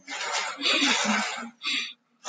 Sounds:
Sniff